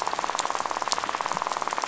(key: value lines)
label: biophony, rattle
recorder: SoundTrap 500